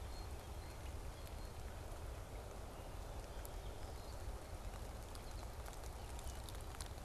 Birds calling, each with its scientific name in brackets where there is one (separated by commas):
Blue Jay (Cyanocitta cristata)